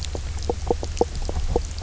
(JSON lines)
{"label": "biophony, knock croak", "recorder": "SoundTrap 300"}